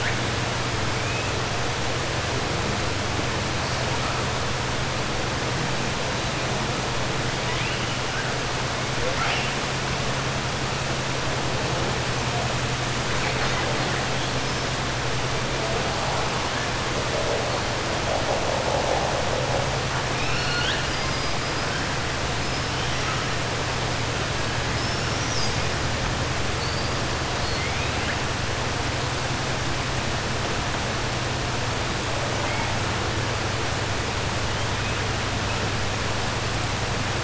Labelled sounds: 20.1	21.3	killer whale, 1.4 to 5.8 kHz
27.5	28.2	killer whale, 1.6 to 3.2 kHz

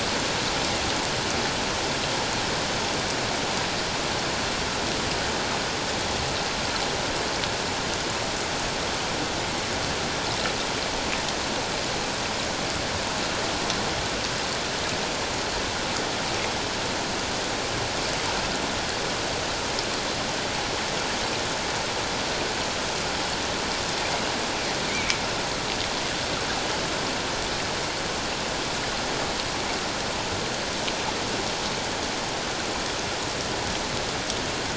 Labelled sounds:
24.9	25.2	killer whale, offshore, call OFF07, 2.1 to 2.4 kHz

